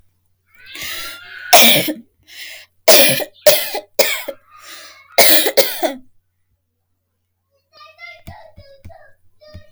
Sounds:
Cough